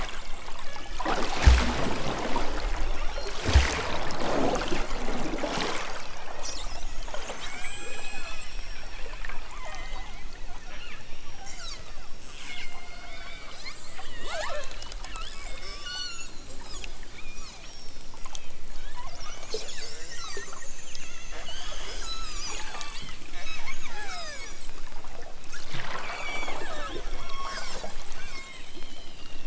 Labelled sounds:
0.1	1.1	killer whale, southern Alaska resident, 0.78 to 4.3 kHz
2.8	3.3	killer whale, southern Alaska resident, 2.5 to 6.0 kHz
5.6	6.6	killer whale, southern Alaska resident, 1.2 to 5.9 kHz
7.4	8.6	killer whale, southern Alaska resident, 0.42 to 8.0 kHz
9.5	10.2	killer whale, southern Alaska resident, 0.83 to 4.3 kHz
10.5	14.7	killer whale, southern Alaska resident, 0.42 to 6.2 kHz
15.0	16.4	killer whale, southern Alaska resident, 0.51 to 6.1 kHz
17.2	24.7	killer whale, southern Alaska resident, 0.28 to 8.0 kHz
26.0	27.8	killer whale, southern Alaska resident, 0.32 to 6.8 kHz
28.2	28.7	killer whale, southern Alaska resident, 0.78 to 4.1 kHz

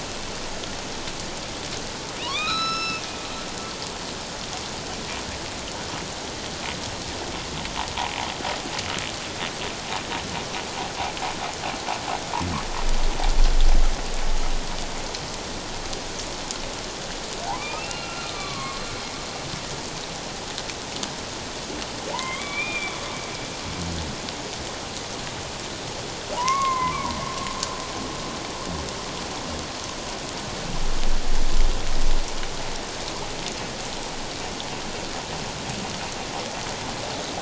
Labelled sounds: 2.2	3.0	humpback whale, 0.91 to 8.0 kHz
17.6	18.8	humpback whale, 1.0 to 4.2 kHz
22.1	23.0	humpback whale, 0.84 to 3.7 kHz
26.3	27.1	humpback whale, 0.78 to 2.3 kHz

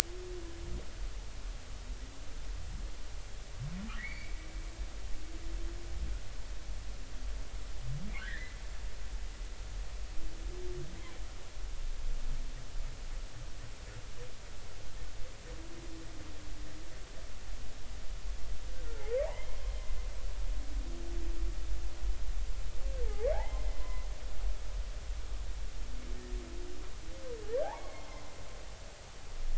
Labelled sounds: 4.0	4.4	humpback whale, 1.6 to 2.4 kHz
8.2	8.6	humpback whale, 1.4 to 2.1 kHz
19.0	19.5	humpback whale, 0.80 to 2.2 kHz
23.0	24.1	humpback whale, 0.80 to 5.2 kHz
27.6	28.1	humpback whale, 0.80 to 2.3 kHz

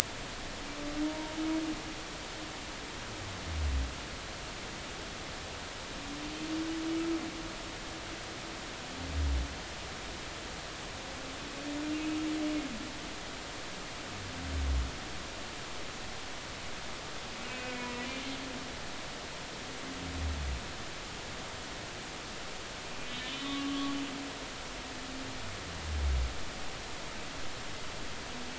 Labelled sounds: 1.0	1.4	humpback whale, 0.90 to 1.1 kHz
11.9	12.2	humpback whale, 2.4 to 2.6 kHz
17.5	18.0	humpback whale, 2.2 to 2.6 kHz
23.3	24.0	humpback whale, 1.1 to 3.7 kHz

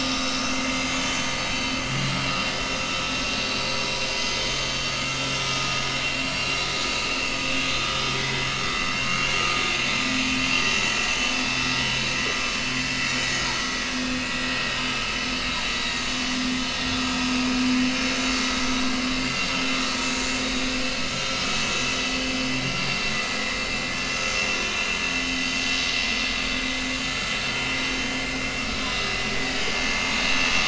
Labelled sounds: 0.6	0.8	vessel noise, 6.2 to 6.5 kHz
2.3	2.5	vessel noise, 4.8 to 5.0 kHz
5.1	5.5	vessel noise, 5.5 to 5.6 kHz
5.9	7.2	vessel noise, 2.5 to 7.2 kHz
7.7	8.0	vessel noise, 3.6 to 3.8 kHz
8.8	9.3	vessel noise, 2.7 to 4.5 kHz
11.2	11.4	vessel noise, 2.9 to 3.0 kHz
19.1	19.8	vessel noise, 3.0 to 3.7 kHz
22.6	23.0	vessel noise, 4.5 to 4.7 kHz
25.0	25.4	vessel noise, 6.4 to 6.6 kHz
30.2	30.5	vessel noise, 6.1 to 6.4 kHz

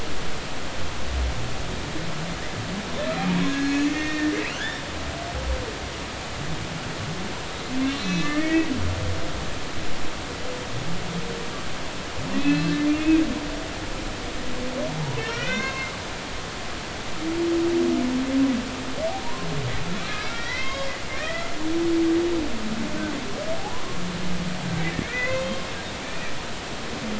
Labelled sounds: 3.5	4.8	humpback whale, 1.3 to 2.7 kHz
8.0	8.7	humpback whale, 1.7 to 4.1 kHz
12.4	13.2	humpback whale, 2.3 to 2.7 kHz
15.0	15.9	humpback whale, 0.80 to 4.4 kHz
16.5	16.9	humpback whale, 0.99 to 1.1 kHz
19.2	21.5	humpback whale, 0.90 to 5.0 kHz
25.0	25.5	humpback whale, 1.4 to 2.7 kHz
26.0	26.3	humpback whale, 2.3 to 2.6 kHz

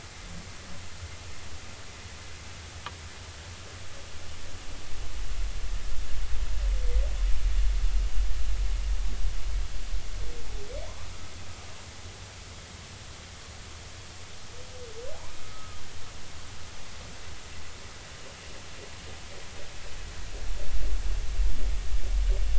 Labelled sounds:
15.4	15.8	humpback whale, 1.2 to 1.3 kHz

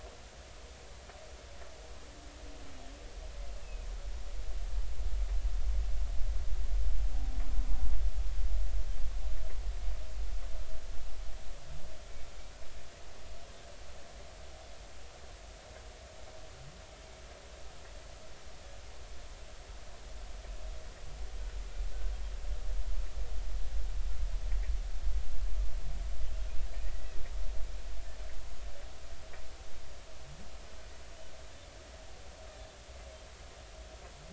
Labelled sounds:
3.6	3.9	humpback whale, 2.4 to 2.7 kHz
26.8	27.1	humpback whale, 1.8 to 2.0 kHz

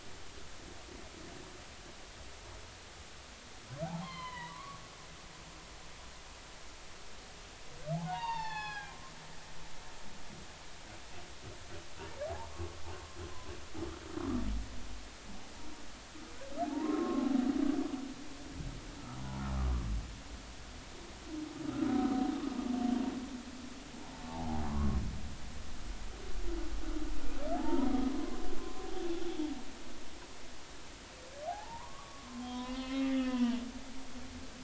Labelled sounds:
3.8	4.8	humpback whale, 0.80 to 4.3 kHz
7.9	9.0	humpback whale, 0.80 to 5.2 kHz
12.3	12.5	humpback whale, 0.80 to 1.1 kHz
16.6	17.3	humpback whale, 0.80 to 1.1 kHz
21.9	22.2	humpback whale, 1.2 to 1.3 kHz
22.8	23.0	humpback whale, 3.0 to 3.4 kHz
24.3	25.0	humpback whale, 0.80 to 1.2 kHz
27.5	28.9	humpback whale, 0.80 to 1.2 kHz
31.4	33.6	humpback whale, 0.80 to 3.5 kHz

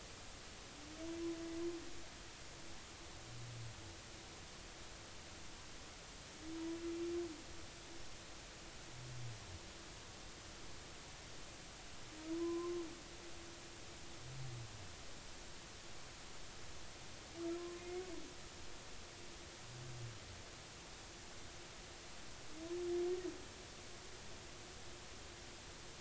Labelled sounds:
12.3	12.8	humpback whale, 0.93 to 1.2 kHz
17.6	18.0	humpback whale, 0.99 to 2.2 kHz

